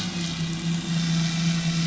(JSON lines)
{"label": "anthrophony, boat engine", "recorder": "SoundTrap 500"}